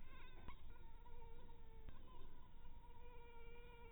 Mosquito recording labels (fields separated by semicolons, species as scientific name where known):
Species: mosquito; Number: one; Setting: cup